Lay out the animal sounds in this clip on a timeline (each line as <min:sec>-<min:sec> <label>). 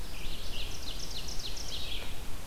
0:00.0-0:01.9 Ovenbird (Seiurus aurocapilla)
0:00.0-0:02.5 Red-eyed Vireo (Vireo olivaceus)